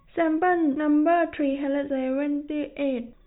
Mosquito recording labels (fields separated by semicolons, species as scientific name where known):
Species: no mosquito; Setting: cup